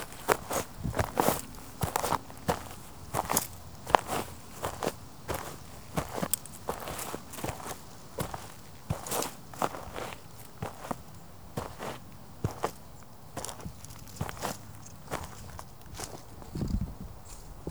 Is this a car?
no